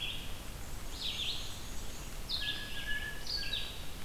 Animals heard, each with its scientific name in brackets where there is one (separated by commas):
Black-and-white Warbler (Mniotilta varia), American Crow (Corvus brachyrhynchos), Red-eyed Vireo (Vireo olivaceus)